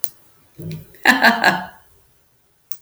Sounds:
Laughter